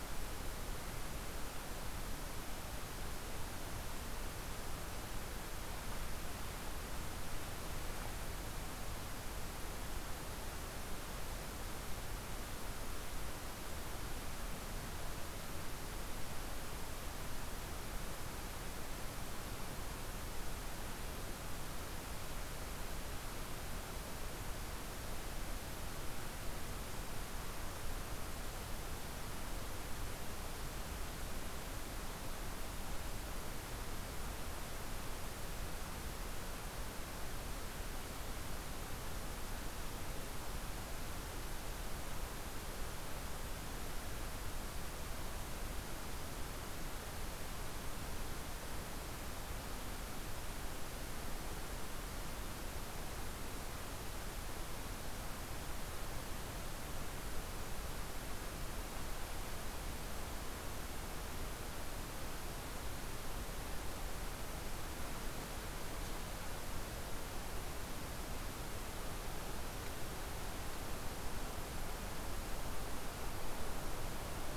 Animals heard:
forest ambience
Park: Katahdin Woods and Waters National Monument